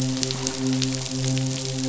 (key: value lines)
label: biophony, midshipman
recorder: SoundTrap 500